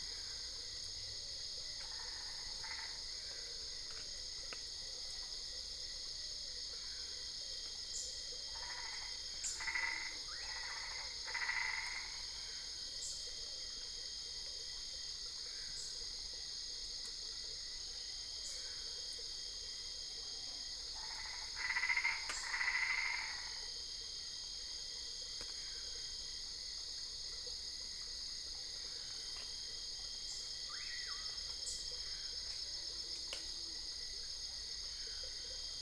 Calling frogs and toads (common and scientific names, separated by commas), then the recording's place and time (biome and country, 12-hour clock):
Boana albopunctata
Cerrado, Brazil, 12:15am